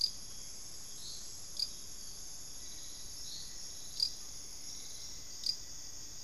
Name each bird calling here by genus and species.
Turdus hauxwelli, Formicarius rufifrons